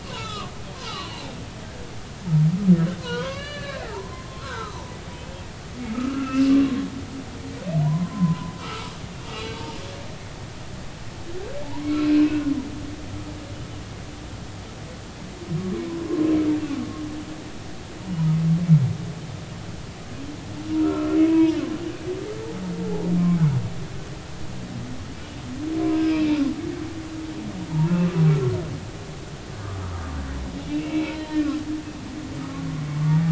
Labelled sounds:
0.0	1.1	humpback whale, 0.96 to 4.1 kHz
3.0	5.0	humpback whale, 0.83 to 4.8 kHz
5.9	6.5	humpback whale, 1.2 to 2.8 kHz
7.8	8.9	humpback whale, 0.90 to 1.4 kHz
9.3	10.2	humpback whale, 1.6 to 2.9 kHz
10.5	10.8	humpback whale, 0.83 to 0.96 kHz
11.8	12.4	humpback whale, 1.0 to 2.7 kHz
16.0	16.3	humpback whale, 0.96 to 1.1 kHz
20.8	21.6	humpback whale, 0.90 to 2.7 kHz
26.0	26.3	humpback whale, 2.3 to 2.7 kHz
30.7	31.2	humpback whale, 2.1 to 2.8 kHz

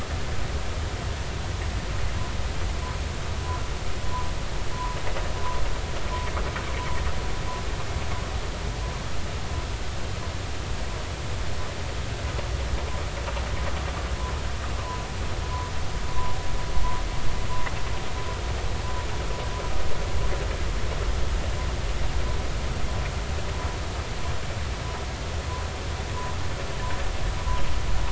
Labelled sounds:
14.8	15.0	humpback whale, 0.93 to 1.1 kHz

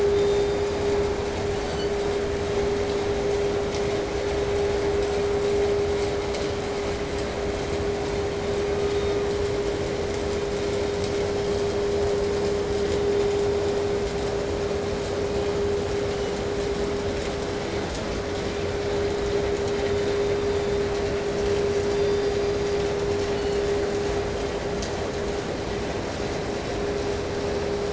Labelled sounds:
0.0	2.1	killer whale, southern resident, 1.1 to 8.0 kHz
8.2	9.4	killer whale, southern resident, 0.68 to 5.7 kHz
15.0	15.7	killer whale, 1.7 to 3.2 kHz
16.0	16.5	killer whale, 1.8 to 8.0 kHz
17.6	21.1	killer whale, 3.2 to 4.1 kHz
21.8	23.9	killer whale, southern resident, 1.6 to 5.1 kHz

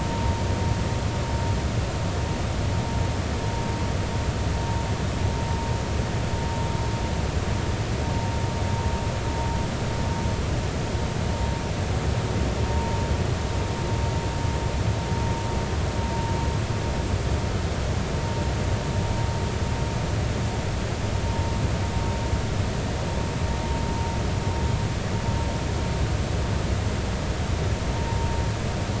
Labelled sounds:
12.7	13.0	vessel noise, 0.90 to 1.0 kHz

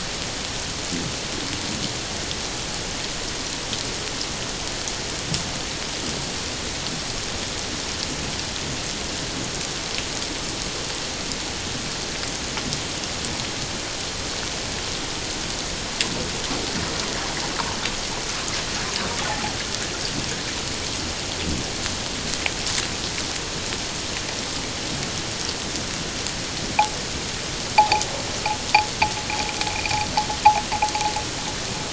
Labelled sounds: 19.3	19.6	water noise, 0.78 to 0.91 kHz
27.8	28.0	noise likely from the mooring, 0.78 to 1.0 kHz

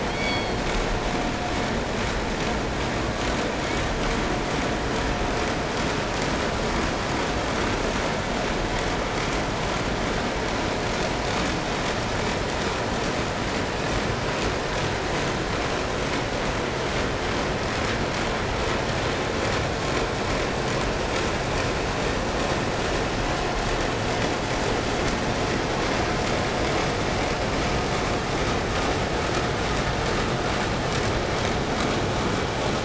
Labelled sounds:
0.0	1.0	killer whale, southern resident, call S16, 1.7 to 5.1 kHz
3.6	4.0	killer whale, 1.9 to 4.0 kHz

